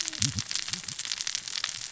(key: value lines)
label: biophony, cascading saw
recorder: SoundTrap 600 or HydroMoth